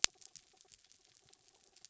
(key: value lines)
label: anthrophony, mechanical
recorder: SoundTrap 300